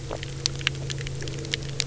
{"label": "anthrophony, boat engine", "recorder": "SoundTrap 300"}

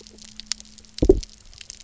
{"label": "biophony, double pulse", "recorder": "SoundTrap 300"}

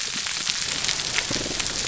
{"label": "biophony", "recorder": "SoundTrap 300"}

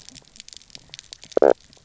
{"label": "biophony, knock croak", "recorder": "SoundTrap 300"}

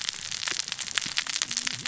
{"label": "biophony, cascading saw", "recorder": "SoundTrap 600 or HydroMoth"}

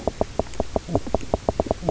{"label": "biophony, knock croak", "recorder": "SoundTrap 300"}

